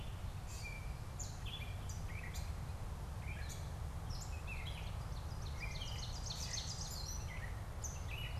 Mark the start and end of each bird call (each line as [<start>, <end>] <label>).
[0.00, 8.40] Gray Catbird (Dumetella carolinensis)
[4.64, 7.64] Ovenbird (Seiurus aurocapilla)
[7.64, 8.40] Common Yellowthroat (Geothlypis trichas)